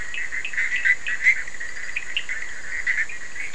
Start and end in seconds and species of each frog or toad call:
0.0	2.6	Sphaenorhynchus surdus
Atlantic Forest, 2:15am

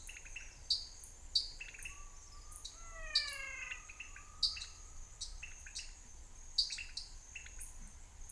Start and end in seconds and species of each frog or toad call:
0.0	7.2	Dendropsophus nanus
0.0	7.6	Leptodactylus podicipinus
2.6	3.9	Physalaemus albonotatus
Cerrado, 6:15pm

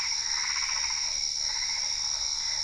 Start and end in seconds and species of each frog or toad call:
0.0	2.6	Boana albopunctata
0.6	2.6	Boana lundii
Cerrado, 8:30pm

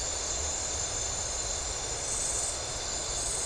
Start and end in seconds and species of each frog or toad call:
none
Atlantic Forest, 10:30pm

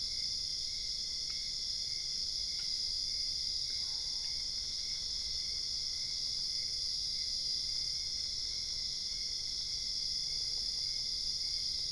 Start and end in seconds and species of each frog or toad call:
3.8	4.3	Boana albopunctata
Cerrado, 12:30am

